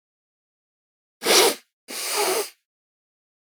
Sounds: Sniff